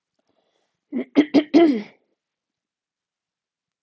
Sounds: Throat clearing